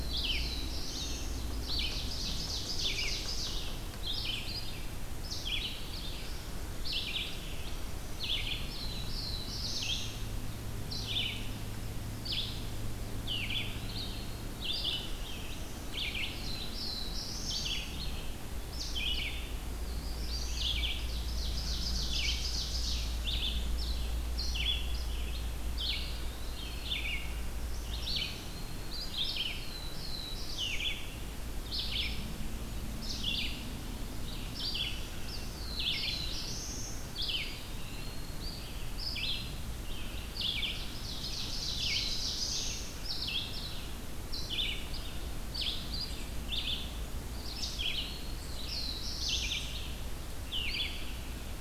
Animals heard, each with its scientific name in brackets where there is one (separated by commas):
Black-throated Blue Warbler (Setophaga caerulescens), Eastern Wood-Pewee (Contopus virens), Red-eyed Vireo (Vireo olivaceus), Ovenbird (Seiurus aurocapilla), Black-throated Green Warbler (Setophaga virens)